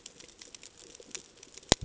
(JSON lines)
{"label": "ambient", "recorder": "HydroMoth"}